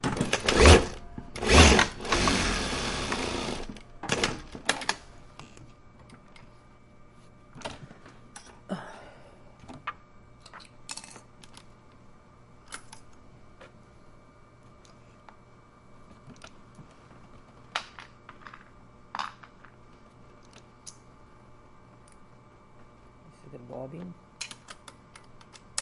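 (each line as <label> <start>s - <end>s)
A woman sighs softly while sewing, with the quiet sound of fabric moving and the rhythmic hum of the machine. 0.0s - 25.8s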